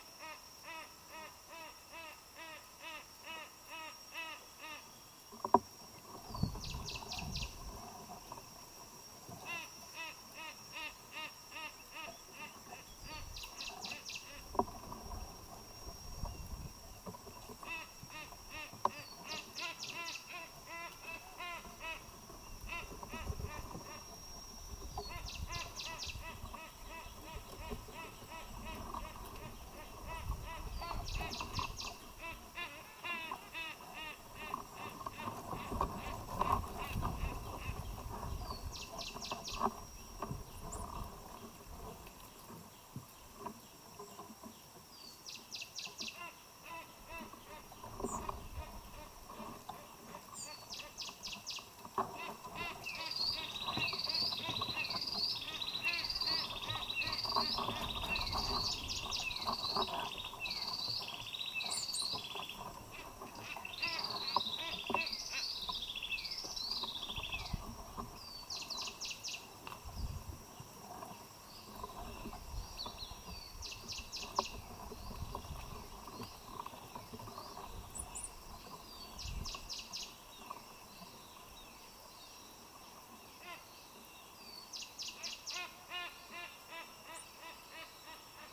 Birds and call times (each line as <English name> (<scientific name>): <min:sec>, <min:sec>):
Silvery-cheeked Hornbill (Bycanistes brevis): 0:02.6, 0:11.3, 0:33.3, 0:52.7, 1:27.3
Cinnamon Bracken-Warbler (Bradypterus cinnamomeus): 0:13.8, 0:25.7, 0:39.4, 0:51.1, 0:59.0, 1:09.0
Hunter's Cisticola (Cisticola hunteri): 0:56.9, 1:05.9